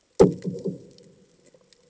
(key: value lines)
label: anthrophony, bomb
recorder: HydroMoth